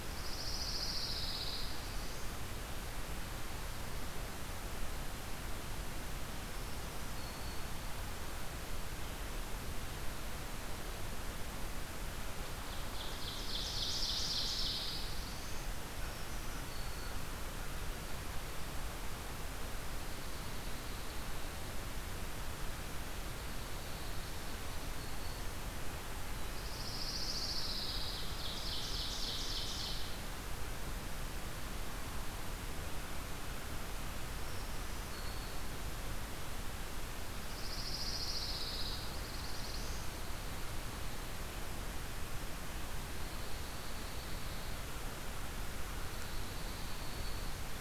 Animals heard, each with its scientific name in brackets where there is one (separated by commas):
Pine Warbler (Setophaga pinus), Black-throated Blue Warbler (Setophaga caerulescens), Ovenbird (Seiurus aurocapilla), Black-throated Green Warbler (Setophaga virens), Dark-eyed Junco (Junco hyemalis)